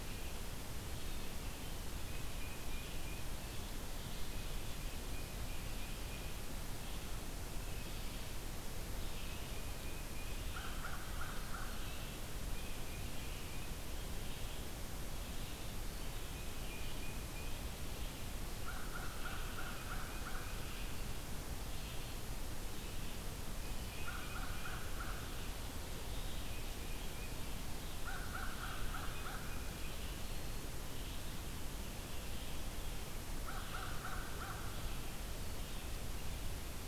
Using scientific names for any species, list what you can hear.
Vireo olivaceus, Baeolophus bicolor, Corvus brachyrhynchos